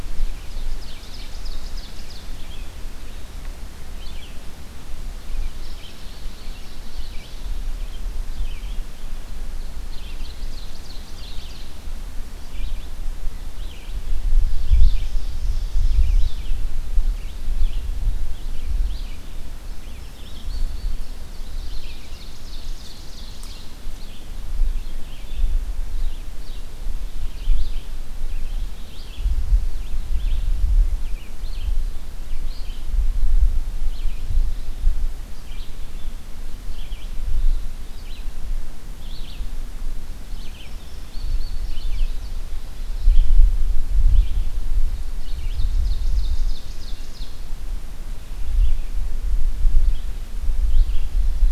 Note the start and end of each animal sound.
0.0s-2.7s: Red-eyed Vireo (Vireo olivaceus)
0.3s-2.5s: Ovenbird (Seiurus aurocapilla)
3.9s-51.5s: Red-eyed Vireo (Vireo olivaceus)
9.6s-11.8s: Ovenbird (Seiurus aurocapilla)
14.2s-16.8s: Ovenbird (Seiurus aurocapilla)
19.1s-21.5s: Indigo Bunting (Passerina cyanea)
21.5s-23.9s: Ovenbird (Seiurus aurocapilla)
40.2s-42.6s: Indigo Bunting (Passerina cyanea)
45.1s-47.5s: Ovenbird (Seiurus aurocapilla)

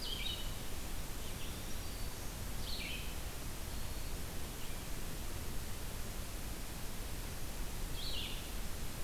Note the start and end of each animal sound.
0.0s-9.0s: Red-eyed Vireo (Vireo olivaceus)
1.0s-2.4s: Black-throated Green Warbler (Setophaga virens)

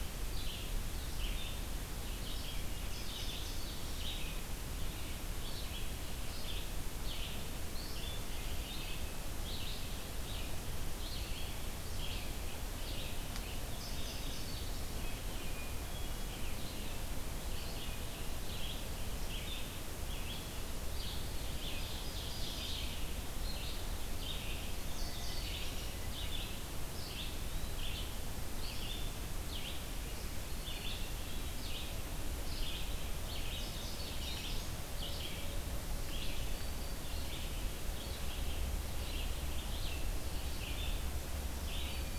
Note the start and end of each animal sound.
0.0s-42.2s: Red-eyed Vireo (Vireo olivaceus)
2.5s-3.8s: Indigo Bunting (Passerina cyanea)
13.6s-14.7s: Indigo Bunting (Passerina cyanea)
15.4s-16.3s: Hermit Thrush (Catharus guttatus)
21.3s-22.9s: Ovenbird (Seiurus aurocapilla)
24.7s-25.9s: Indigo Bunting (Passerina cyanea)
33.2s-34.9s: Indigo Bunting (Passerina cyanea)

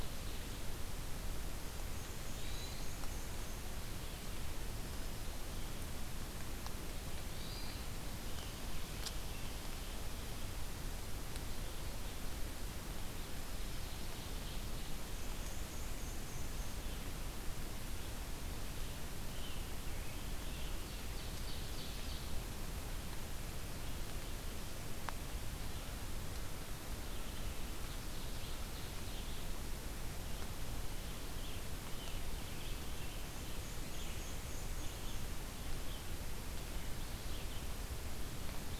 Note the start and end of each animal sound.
1.6s-3.7s: Black-and-white Warbler (Mniotilta varia)
2.3s-2.8s: Hermit Thrush (Catharus guttatus)
7.2s-7.9s: Hermit Thrush (Catharus guttatus)
8.1s-10.4s: American Robin (Turdus migratorius)
12.9s-15.2s: Ovenbird (Seiurus aurocapilla)
14.8s-17.0s: Black-and-white Warbler (Mniotilta varia)
18.2s-20.8s: American Robin (Turdus migratorius)
20.3s-22.3s: Ovenbird (Seiurus aurocapilla)
26.8s-38.8s: Red-eyed Vireo (Vireo olivaceus)
27.4s-29.6s: Ovenbird (Seiurus aurocapilla)
33.3s-35.3s: Black-and-white Warbler (Mniotilta varia)

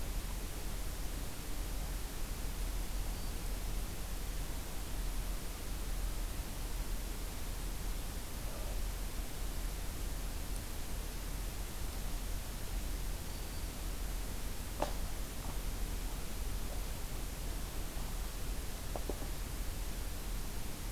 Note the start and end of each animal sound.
13.2s-13.7s: Black-throated Green Warbler (Setophaga virens)

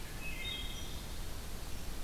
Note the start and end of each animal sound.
0.0s-1.1s: Wood Thrush (Hylocichla mustelina)

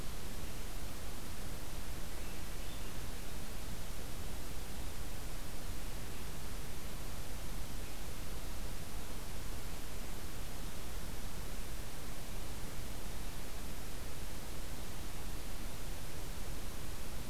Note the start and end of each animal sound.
2.0s-3.0s: Swainson's Thrush (Catharus ustulatus)

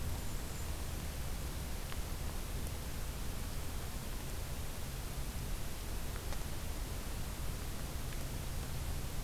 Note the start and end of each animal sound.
0.0s-1.0s: Blackburnian Warbler (Setophaga fusca)

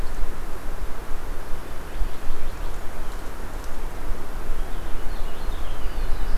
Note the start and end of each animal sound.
4.4s-6.4s: Purple Finch (Haemorhous purpureus)
5.6s-6.4s: Black-throated Blue Warbler (Setophaga caerulescens)

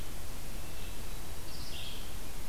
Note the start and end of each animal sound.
0.0s-2.5s: Red-eyed Vireo (Vireo olivaceus)
0.5s-1.5s: Hermit Thrush (Catharus guttatus)

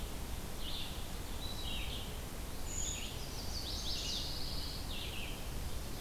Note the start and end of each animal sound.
0.0s-6.0s: Red-eyed Vireo (Vireo olivaceus)
1.2s-2.0s: Eastern Wood-Pewee (Contopus virens)
2.5s-3.2s: Brown Creeper (Certhia americana)
3.1s-4.3s: Chestnut-sided Warbler (Setophaga pensylvanica)
4.1s-4.9s: Pine Warbler (Setophaga pinus)

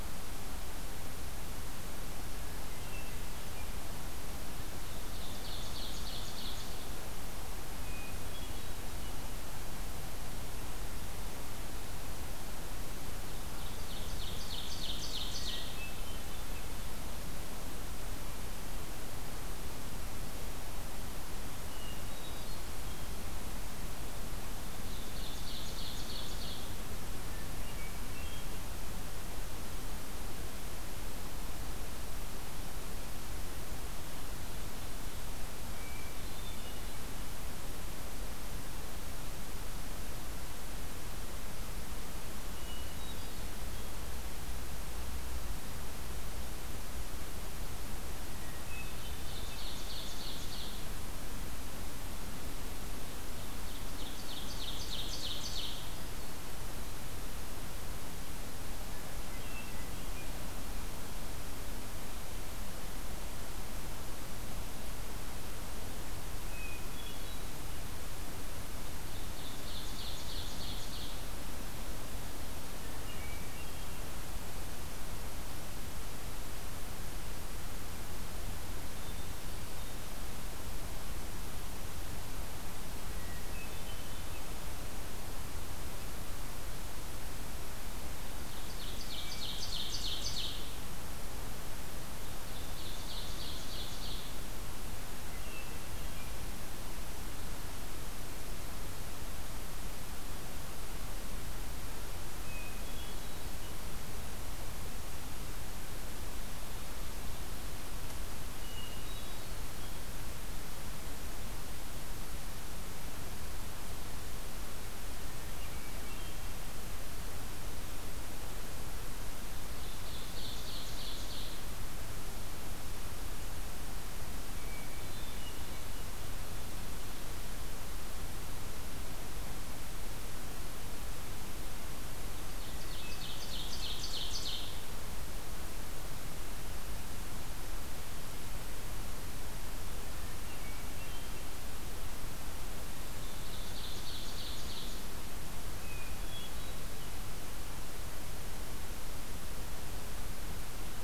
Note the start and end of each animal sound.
2.1s-4.0s: Hermit Thrush (Catharus guttatus)
4.8s-7.1s: Ovenbird (Seiurus aurocapilla)
7.7s-9.5s: Hermit Thrush (Catharus guttatus)
13.2s-15.9s: Ovenbird (Seiurus aurocapilla)
15.2s-16.9s: Hermit Thrush (Catharus guttatus)
21.3s-23.4s: Hermit Thrush (Catharus guttatus)
24.7s-26.9s: Ovenbird (Seiurus aurocapilla)
27.5s-28.7s: Hermit Thrush (Catharus guttatus)
35.6s-37.1s: Hermit Thrush (Catharus guttatus)
42.4s-43.8s: Hermit Thrush (Catharus guttatus)
48.5s-49.8s: Hermit Thrush (Catharus guttatus)
49.0s-51.0s: Ovenbird (Seiurus aurocapilla)
53.3s-56.0s: Ovenbird (Seiurus aurocapilla)
59.2s-60.6s: Hermit Thrush (Catharus guttatus)
66.1s-67.7s: Hermit Thrush (Catharus guttatus)
68.9s-71.4s: Ovenbird (Seiurus aurocapilla)
72.9s-74.2s: Hermit Thrush (Catharus guttatus)
78.6s-80.3s: Hermit Thrush (Catharus guttatus)
82.9s-84.8s: Hermit Thrush (Catharus guttatus)
88.4s-90.8s: Ovenbird (Seiurus aurocapilla)
92.3s-94.6s: Ovenbird (Seiurus aurocapilla)
95.1s-96.4s: Hermit Thrush (Catharus guttatus)
102.2s-103.9s: Hermit Thrush (Catharus guttatus)
108.5s-110.1s: Hermit Thrush (Catharus guttatus)
115.2s-116.8s: Hermit Thrush (Catharus guttatus)
119.5s-121.8s: Ovenbird (Seiurus aurocapilla)
124.2s-126.0s: Hermit Thrush (Catharus guttatus)
132.2s-135.0s: Ovenbird (Seiurus aurocapilla)
132.5s-133.6s: Hermit Thrush (Catharus guttatus)
140.2s-141.5s: Hermit Thrush (Catharus guttatus)
143.0s-145.1s: Ovenbird (Seiurus aurocapilla)
145.6s-147.2s: Hermit Thrush (Catharus guttatus)

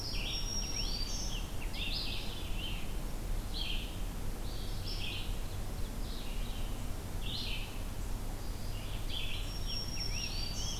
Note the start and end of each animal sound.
0.0s-10.8s: Red-eyed Vireo (Vireo olivaceus)
0.0s-2.3s: Rose-breasted Grosbeak (Pheucticus ludovicianus)
0.1s-1.4s: Black-throated Green Warbler (Setophaga virens)
8.8s-10.8s: Rose-breasted Grosbeak (Pheucticus ludovicianus)
9.2s-10.8s: Black-throated Green Warbler (Setophaga virens)

